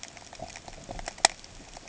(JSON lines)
{"label": "ambient", "recorder": "HydroMoth"}